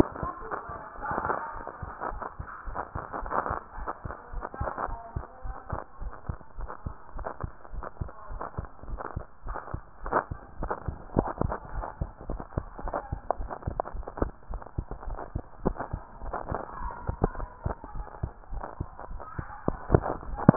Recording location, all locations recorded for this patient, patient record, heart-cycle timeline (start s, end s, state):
tricuspid valve (TV)
aortic valve (AV)+pulmonary valve (PV)+tricuspid valve (TV)+mitral valve (MV)
#Age: Child
#Sex: Female
#Height: 136.0 cm
#Weight: 28.0 kg
#Pregnancy status: False
#Murmur: Absent
#Murmur locations: nan
#Most audible location: nan
#Systolic murmur timing: nan
#Systolic murmur shape: nan
#Systolic murmur grading: nan
#Systolic murmur pitch: nan
#Systolic murmur quality: nan
#Diastolic murmur timing: nan
#Diastolic murmur shape: nan
#Diastolic murmur grading: nan
#Diastolic murmur pitch: nan
#Diastolic murmur quality: nan
#Outcome: Normal
#Campaign: 2015 screening campaign
0.00	4.14	unannotated
4.14	4.32	diastole
4.32	4.44	S1
4.44	4.58	systole
4.58	4.72	S2
4.72	4.88	diastole
4.88	5.00	S1
5.00	5.14	systole
5.14	5.24	S2
5.24	5.44	diastole
5.44	5.56	S1
5.56	5.68	systole
5.68	5.80	S2
5.80	6.00	diastole
6.00	6.14	S1
6.14	6.26	systole
6.26	6.40	S2
6.40	6.58	diastole
6.58	6.70	S1
6.70	6.82	systole
6.82	6.94	S2
6.94	7.14	diastole
7.14	7.28	S1
7.28	7.40	systole
7.40	7.52	S2
7.52	7.72	diastole
7.72	7.84	S1
7.84	8.00	systole
8.00	8.10	S2
8.10	8.30	diastole
8.30	8.42	S1
8.42	8.58	systole
8.58	8.70	S2
8.70	8.88	diastole
8.88	9.00	S1
9.00	9.14	systole
9.14	9.24	S2
9.24	9.46	diastole
9.46	9.58	S1
9.58	9.72	systole
9.72	9.82	S2
9.82	10.04	diastole
10.04	10.18	S1
10.18	10.29	systole
10.29	10.40	S2
10.40	10.58	diastole
10.58	10.72	S1
10.72	10.86	systole
10.86	11.00	S2
11.00	11.14	diastole
11.14	11.30	S1
11.30	11.42	systole
11.42	11.56	S2
11.56	11.72	diastole
11.72	11.86	S1
11.86	12.00	systole
12.00	12.12	S2
12.12	12.28	diastole
12.28	12.44	S1
12.44	12.56	systole
12.56	12.68	S2
12.68	12.82	diastole
12.82	12.94	S1
12.94	13.10	systole
13.10	13.22	S2
13.22	13.38	diastole
13.38	13.52	S1
13.52	13.66	systole
13.66	13.78	S2
13.78	13.92	diastole
13.92	14.06	S1
14.06	14.20	systole
14.20	14.34	S2
14.34	14.50	diastole
14.50	14.62	S1
14.62	14.74	systole
14.74	14.88	S2
14.88	15.06	diastole
15.06	15.20	S1
15.20	15.34	systole
15.34	15.48	S2
15.48	15.64	diastole
15.64	15.78	S1
15.78	15.92	systole
15.92	16.02	S2
16.02	16.22	diastole
16.22	16.36	S1
16.36	16.48	systole
16.48	16.60	S2
16.60	16.78	diastole
16.78	16.94	S1
16.94	17.04	systole
17.04	17.10	S2
17.10	17.24	diastole
17.24	17.42	S1
17.42	17.62	systole
17.62	17.76	S2
17.76	17.94	diastole
17.94	18.08	S1
18.08	18.20	systole
18.20	18.34	S2
18.34	18.50	diastole
18.50	18.64	S1
18.64	18.76	systole
18.76	18.88	S2
18.88	19.08	diastole
19.08	19.22	S1
19.22	19.38	systole
19.38	19.48	S2
19.48	19.66	diastole
19.66	20.56	unannotated